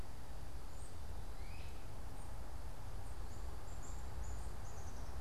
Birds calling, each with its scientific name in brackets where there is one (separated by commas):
Great Crested Flycatcher (Myiarchus crinitus), Black-capped Chickadee (Poecile atricapillus)